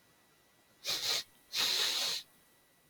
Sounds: Sniff